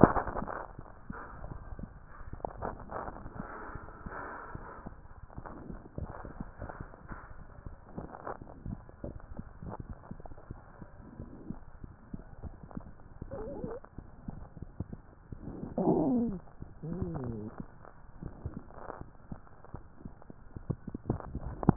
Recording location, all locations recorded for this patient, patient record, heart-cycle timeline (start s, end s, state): mitral valve (MV)
pulmonary valve (PV)+tricuspid valve (TV)+mitral valve (MV)
#Age: Child
#Sex: Female
#Height: 123.0 cm
#Weight: 30.0 kg
#Pregnancy status: False
#Murmur: Unknown
#Murmur locations: nan
#Most audible location: nan
#Systolic murmur timing: nan
#Systolic murmur shape: nan
#Systolic murmur grading: nan
#Systolic murmur pitch: nan
#Systolic murmur quality: nan
#Diastolic murmur timing: nan
#Diastolic murmur shape: nan
#Diastolic murmur grading: nan
#Diastolic murmur pitch: nan
#Diastolic murmur quality: nan
#Outcome: Abnormal
#Campaign: 2014 screening campaign
0.00	1.78	unannotated
1.78	1.86	S2
1.86	2.32	diastole
2.32	2.40	S1
2.40	2.60	systole
2.60	2.70	S2
2.70	3.06	diastole
3.06	3.16	S1
3.16	3.36	systole
3.36	3.46	S2
3.46	3.72	diastole
3.72	3.82	S1
3.82	4.04	systole
4.04	4.12	S2
4.12	4.54	diastole
4.54	4.66	S1
4.66	4.84	systole
4.84	4.94	S2
4.94	5.38	diastole
5.38	5.50	S1
5.50	5.68	systole
5.68	5.78	S2
5.78	5.98	diastole
5.98	6.10	S1
6.10	6.26	systole
6.26	6.32	S2
6.32	6.62	diastole
6.62	6.68	S1
6.68	21.76	unannotated